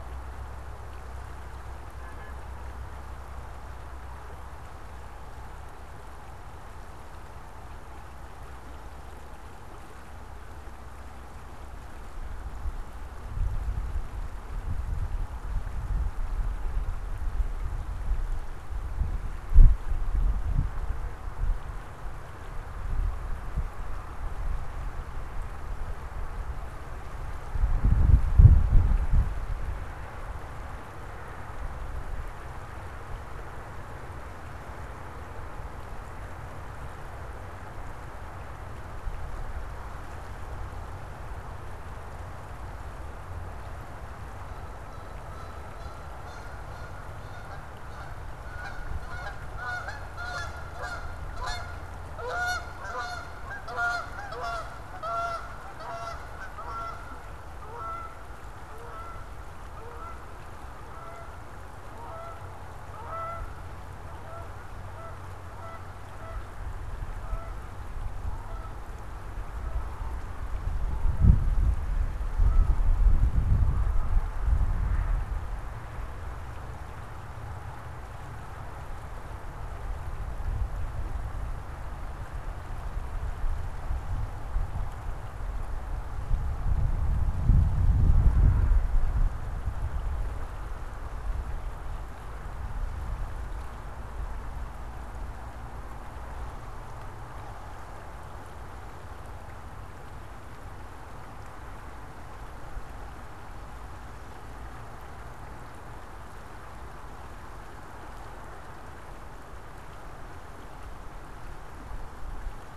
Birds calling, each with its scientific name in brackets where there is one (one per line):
Canada Goose (Branta canadensis)